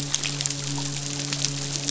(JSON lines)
{"label": "biophony, midshipman", "recorder": "SoundTrap 500"}